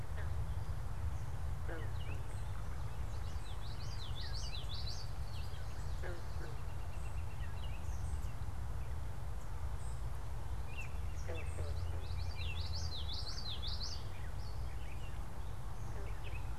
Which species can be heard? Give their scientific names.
Icterus galbula, Geothlypis trichas, Turdus migratorius